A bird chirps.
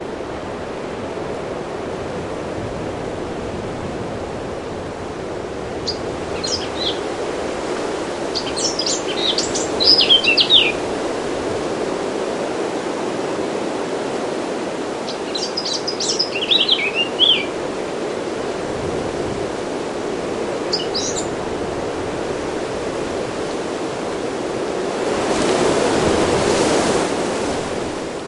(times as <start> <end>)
5.8 10.9, 14.9 17.7, 20.6 21.5